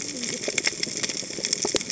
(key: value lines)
label: biophony, cascading saw
recorder: HydroMoth